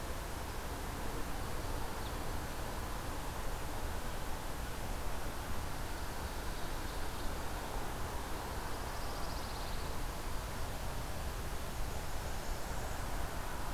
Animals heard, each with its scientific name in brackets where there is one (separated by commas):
Pine Warbler (Setophaga pinus), Blackburnian Warbler (Setophaga fusca)